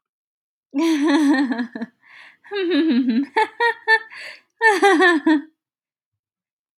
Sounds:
Laughter